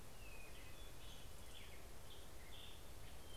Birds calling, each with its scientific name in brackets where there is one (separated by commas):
Hermit Thrush (Catharus guttatus), American Robin (Turdus migratorius)